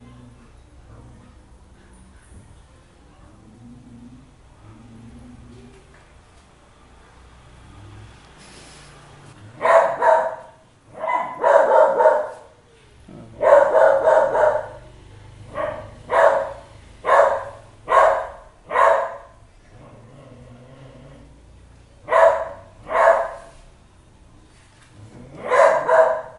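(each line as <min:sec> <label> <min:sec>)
0:00.0 Low-level static or electronic hum indicating the start of a recording. 0:09.4
0:09.5 A dog barks at irregular intervals in the distance. 0:26.4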